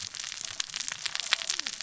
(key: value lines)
label: biophony, cascading saw
recorder: SoundTrap 600 or HydroMoth